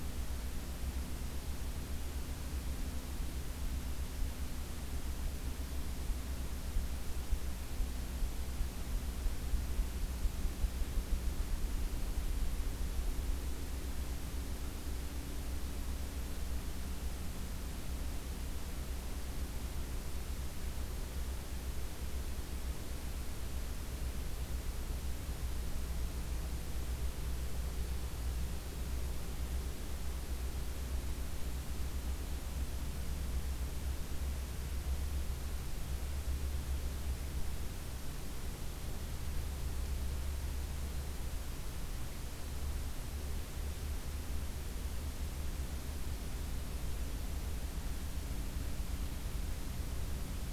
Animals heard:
forest ambience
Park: Acadia National Park